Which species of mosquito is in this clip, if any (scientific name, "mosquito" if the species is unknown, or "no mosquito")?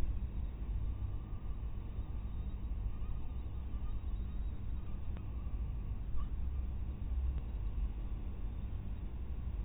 mosquito